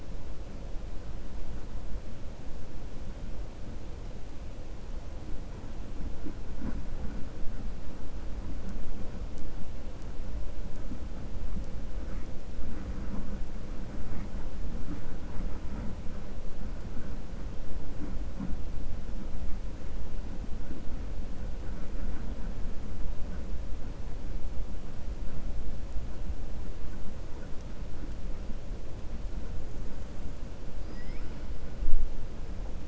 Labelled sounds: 30.8	31.4	killer whale, 1.3 to 3.1 kHz

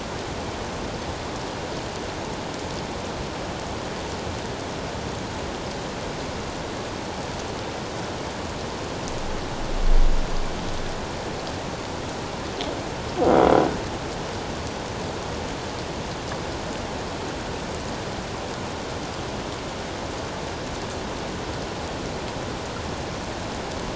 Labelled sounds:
13.3	13.6	croaking sound likely from a nearby submerged object, 3.2 to 3.4 kHz

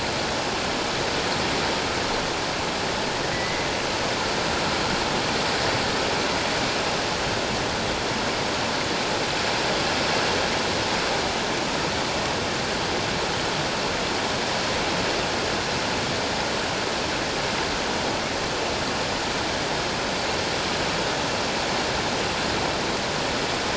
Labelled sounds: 3.3	3.7	killer whale, 1.9 to 2.2 kHz

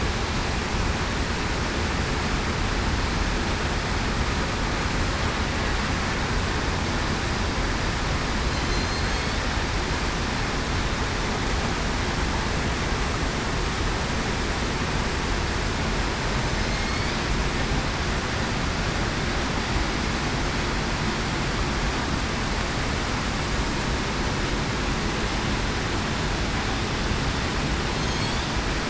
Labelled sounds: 8.5	9.3	killer whale, southern resident, 4.1 to 4.5 kHz

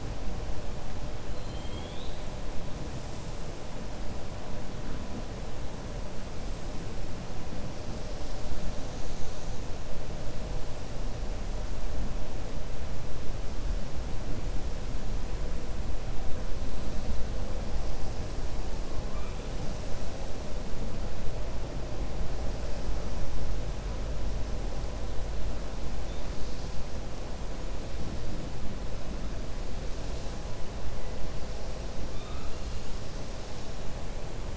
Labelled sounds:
1.3	2.2	killer whale, 2.2 to 4.2 kHz

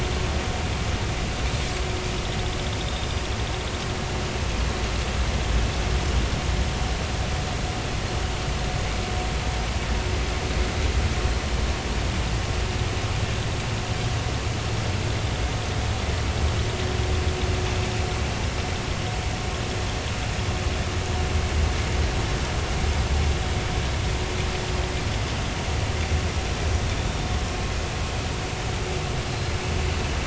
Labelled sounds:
2.8	3.2	Pacific white-sided dolphin, 3.5 to 3.9 kHz
29.3	29.5	Pacific white-sided dolphin, 4.1 to 4.3 kHz

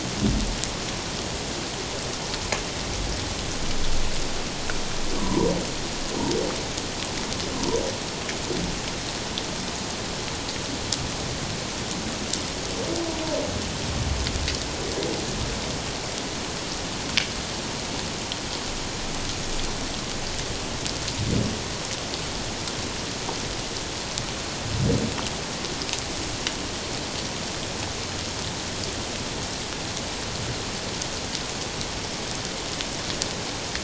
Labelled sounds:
5.2	5.6	humpback whale, 0.88 to 1.2 kHz

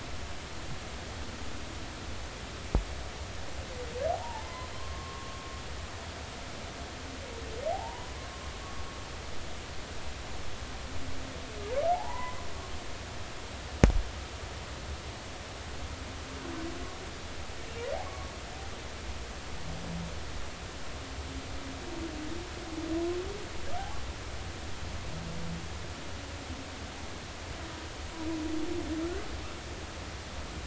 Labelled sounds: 4.1	5.4	humpback whale, 0.80 to 1.2 kHz
7.7	8.1	humpback whale, 0.80 to 1.0 kHz
11.9	12.4	humpback whale, 0.80 to 2.1 kHz
18.1	18.3	humpback whale, 1.0 to 1.2 kHz

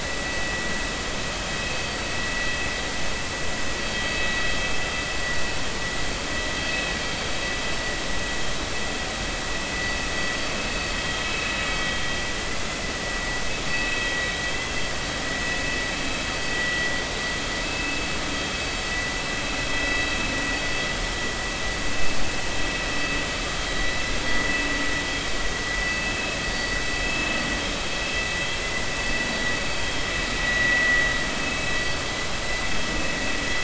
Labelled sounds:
1.7	2.0	vessel noise, 4.5 to 4.6 kHz
13.7	14.2	vessel noise, 2.5 to 3.3 kHz
17.5	18.0	vessel noise, 1.9 to 2.7 kHz
25.8	26.8	vessel noise, 2.6 to 4.6 kHz
27.0	27.3	vessel noise, 2.6 to 2.7 kHz
30.4	31.0	vessel noise, 1.9 to 2.0 kHz

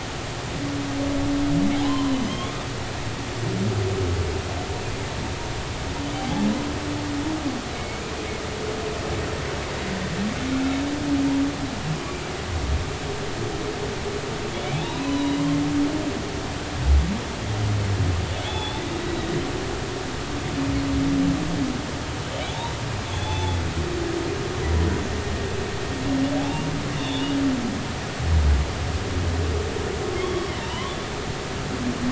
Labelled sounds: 1.8	2.5	humpback whale, 0.96 to 3.5 kHz
6.2	6.5	humpback whale, 0.80 to 0.90 kHz
7.7	8.0	humpback whale, 2.1 to 2.3 kHz
14.7	15.4	humpback whale, 0.80 to 4.1 kHz
18.4	19.7	humpback whale, 0.80 to 4.0 kHz
23.1	23.6	humpback whale, 0.80 to 3.6 kHz
26.4	27.3	humpback whale, 0.80 to 3.7 kHz
30.6	31.0	humpback whale, 0.86 to 1.2 kHz

